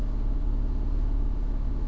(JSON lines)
{"label": "anthrophony, boat engine", "recorder": "SoundTrap 300"}